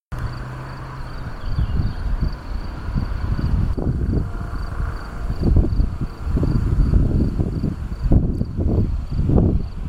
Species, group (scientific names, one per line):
Gryllus campestris
Orthoptera